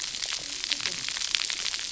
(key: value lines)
label: biophony, cascading saw
recorder: SoundTrap 300